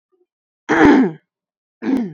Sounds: Throat clearing